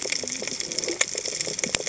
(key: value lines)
label: biophony, cascading saw
recorder: HydroMoth